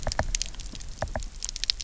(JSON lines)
{"label": "biophony, knock", "recorder": "SoundTrap 300"}